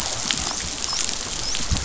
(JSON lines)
{"label": "biophony, dolphin", "recorder": "SoundTrap 500"}